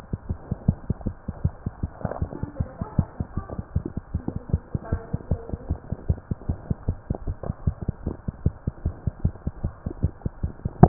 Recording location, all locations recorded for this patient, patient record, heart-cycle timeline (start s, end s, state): tricuspid valve (TV)
aortic valve (AV)+pulmonary valve (PV)+tricuspid valve (TV)+mitral valve (MV)
#Age: Child
#Sex: Male
#Height: 104.0 cm
#Weight: 17.1 kg
#Pregnancy status: False
#Murmur: Absent
#Murmur locations: nan
#Most audible location: nan
#Systolic murmur timing: nan
#Systolic murmur shape: nan
#Systolic murmur grading: nan
#Systolic murmur pitch: nan
#Systolic murmur quality: nan
#Diastolic murmur timing: nan
#Diastolic murmur shape: nan
#Diastolic murmur grading: nan
#Diastolic murmur pitch: nan
#Diastolic murmur quality: nan
#Outcome: Abnormal
#Campaign: 2015 screening campaign
0.00	4.51	unannotated
4.51	4.60	S1
4.60	4.72	systole
4.72	4.80	S2
4.80	4.90	diastole
4.90	4.99	S1
4.99	5.11	systole
5.11	5.20	S2
5.20	5.30	diastole
5.30	5.37	S1
5.37	5.50	systole
5.50	5.58	S2
5.58	5.68	diastole
5.68	5.77	S1
5.77	5.90	systole
5.90	5.96	S2
5.96	6.08	diastole
6.08	6.16	S1
6.16	6.29	systole
6.29	6.38	S2
6.38	6.47	diastole
6.47	6.58	S1
6.58	6.68	systole
6.68	6.76	S2
6.76	6.86	diastole
6.86	6.96	S1
6.96	7.08	systole
7.08	7.16	S2
7.16	7.26	diastole
7.26	7.35	S1
7.35	7.46	systole
7.46	7.53	S2
7.53	7.64	diastole
7.64	7.73	S1
7.73	7.86	systole
7.86	7.94	S2
7.94	8.06	diastole
8.06	8.15	S1
8.15	8.25	systole
8.25	8.34	S2
8.34	8.44	diastole
8.44	8.52	S1
8.52	8.65	systole
8.65	8.73	S2
8.73	8.84	diastole
8.84	8.92	S1
8.92	9.04	systole
9.04	9.13	S2
9.13	9.23	diastole
9.23	9.32	S1
9.32	9.45	systole
9.45	9.52	S2
9.52	9.63	diastole
9.63	9.71	S1
9.71	9.83	systole
9.83	9.94	S2
9.94	10.01	diastole
10.01	10.12	S1
10.12	10.88	unannotated